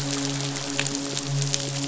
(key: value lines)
label: biophony, midshipman
recorder: SoundTrap 500